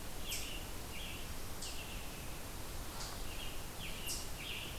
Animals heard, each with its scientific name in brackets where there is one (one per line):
Scarlet Tanager (Piranga olivacea)
Eastern Chipmunk (Tamias striatus)